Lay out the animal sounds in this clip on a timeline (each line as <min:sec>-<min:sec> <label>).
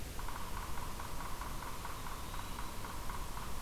0:00.0-0:03.6 Yellow-bellied Sapsucker (Sphyrapicus varius)
0:01.9-0:02.7 Eastern Wood-Pewee (Contopus virens)